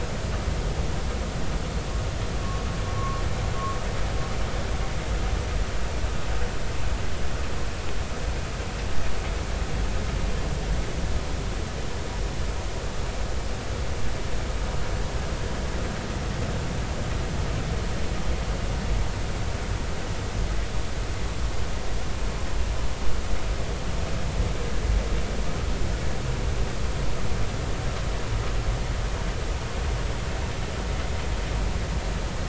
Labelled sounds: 2.9	3.2	vessel noise, 0.99 to 1.2 kHz

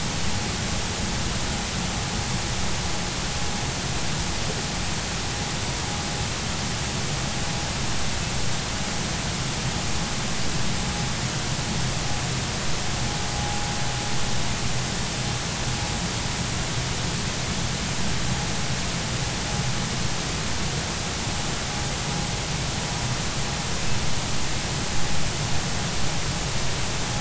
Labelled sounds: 13.3	13.6	vessel noise, 0.80 to 0.86 kHz

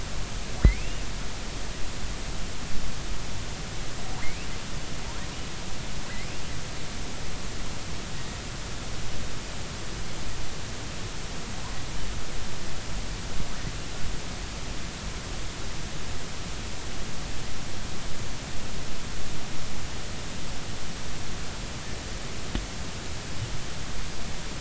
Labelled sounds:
0.6	1.0	killer whale, offshore, 1.8 to 2.9 kHz
4.2	4.5	killer whale, offshore, 1.8 to 2.8 kHz

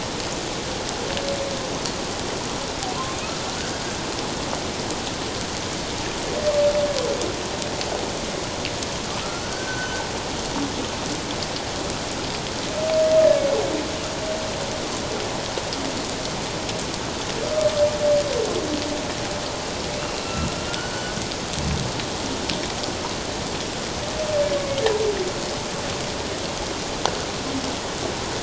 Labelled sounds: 3.5	3.8	humpback whale, 1.4 to 1.7 kHz
9.4	10.0	humpback whale, 1.4 to 6.1 kHz
20.0	21.2	humpback whale, 1.2 to 4.5 kHz

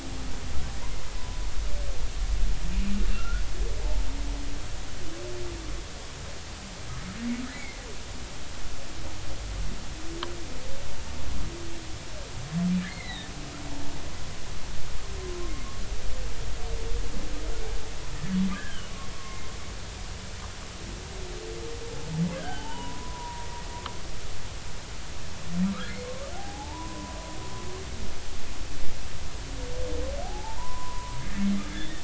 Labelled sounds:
3.1	3.4	humpback whale, 1.3 to 1.5 kHz
12.8	13.3	humpback whale, 1.6 to 4.1 kHz
18.2	19.5	humpback whale, 1.0 to 2.2 kHz
22.4	23.5	humpback whale, 0.80 to 3.1 kHz
26.4	27.2	humpback whale, 0.80 to 1.1 kHz
30.2	32.0	humpback whale, 0.80 to 3.7 kHz

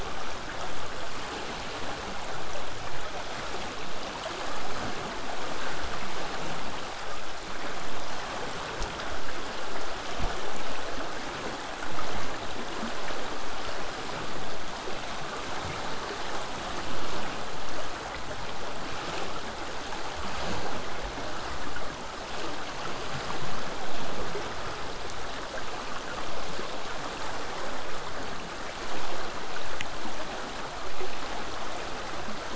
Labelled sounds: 18.8	23.8	vessel noise, 0 to 8.0 kHz

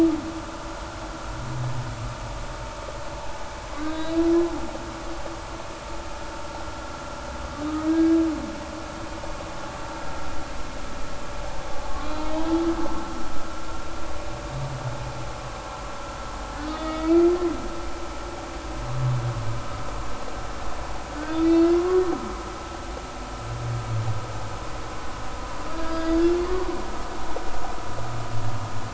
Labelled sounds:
3.8	4.3	humpback whale, 1.4 to 4.0 kHz
7.9	8.2	humpback whale, 1.6 to 1.7 kHz
11.9	12.5	humpback whale, 1.1 to 3.3 kHz
16.6	17.3	humpback whale, 1.2 to 4.5 kHz
21.5	22.0	humpback whale, 1.0 to 3.8 kHz
25.7	26.7	humpback whale, 1.0 to 5.0 kHz

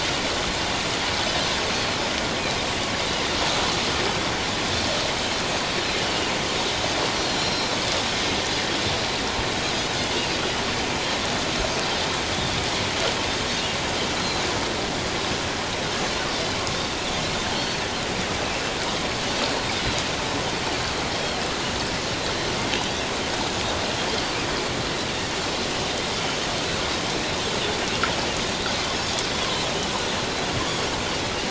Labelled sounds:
7.1	7.8	Pacific white-sided dolphin, 4.0 to 5.7 kHz
10.1	10.4	Pacific white-sided dolphin, 2.4 to 2.9 kHz
14.2	14.4	Pacific white-sided dolphin, 3.9 to 4.2 kHz
17.6	17.8	Pacific white-sided dolphin, 4.1 to 4.5 kHz
21.1	21.4	Pacific white-sided dolphin, 3.1 to 3.3 kHz
26.1	26.4	Pacific white-sided dolphin, 2.9 to 3.1 kHz

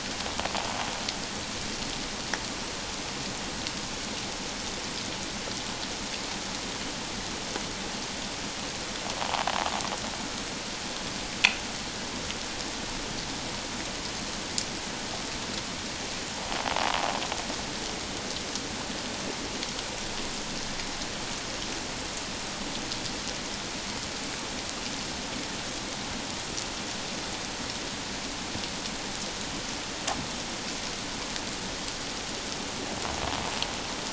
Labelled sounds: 9.2	9.5	invertebrate grinding on or near the hydrophone, 0.78 to 1.2 kHz

